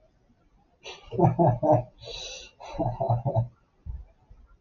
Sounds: Laughter